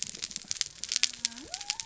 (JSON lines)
{"label": "biophony", "recorder": "SoundTrap 300"}